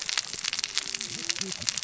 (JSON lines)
{"label": "biophony, cascading saw", "recorder": "SoundTrap 600 or HydroMoth"}